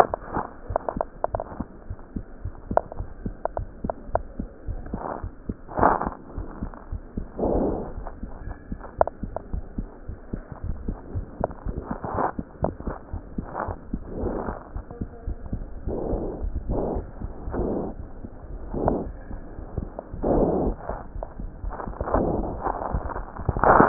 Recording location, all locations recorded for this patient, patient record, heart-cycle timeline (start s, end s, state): pulmonary valve (PV)
aortic valve (AV)+pulmonary valve (PV)+tricuspid valve (TV)+mitral valve (MV)
#Age: Child
#Sex: Male
#Height: 101.0 cm
#Weight: 16.8 kg
#Pregnancy status: False
#Murmur: Absent
#Murmur locations: nan
#Most audible location: nan
#Systolic murmur timing: nan
#Systolic murmur shape: nan
#Systolic murmur grading: nan
#Systolic murmur pitch: nan
#Systolic murmur quality: nan
#Diastolic murmur timing: nan
#Diastolic murmur shape: nan
#Diastolic murmur grading: nan
#Diastolic murmur pitch: nan
#Diastolic murmur quality: nan
#Outcome: Abnormal
#Campaign: 2015 screening campaign
0.00	6.21	unannotated
6.21	6.35	diastole
6.35	6.48	S1
6.48	6.58	systole
6.58	6.72	S2
6.72	6.90	diastole
6.90	7.02	S1
7.02	7.15	systole
7.15	7.28	S2
7.28	7.42	diastole
7.42	7.93	unannotated
7.93	8.06	S1
8.06	8.18	systole
8.18	8.29	S2
8.29	8.44	diastole
8.44	8.58	S1
8.58	8.68	systole
8.68	8.76	S2
8.76	8.97	diastole
8.97	9.08	S1
9.08	9.22	systole
9.22	9.32	S2
9.32	9.49	diastole
9.49	9.64	S1
9.64	9.75	systole
9.75	9.88	S2
9.88	10.05	diastole
10.05	10.18	S1
10.18	10.30	systole
10.30	10.42	S2
10.42	10.64	diastole
10.64	10.77	S1
10.77	10.86	systole
10.86	10.98	S2
10.98	11.12	diastole
11.12	11.26	S1
11.26	11.38	systole
11.38	11.50	S2
11.50	11.64	diastole
11.64	11.77	S1
11.77	11.91	systole
11.91	12.00	S2
12.00	12.18	diastole
12.18	23.89	unannotated